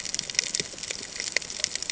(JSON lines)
{"label": "ambient", "recorder": "HydroMoth"}